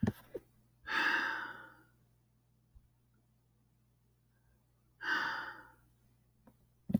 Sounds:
Sigh